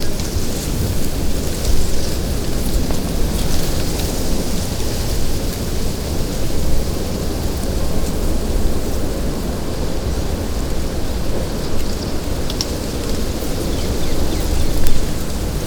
Is this indoors?
no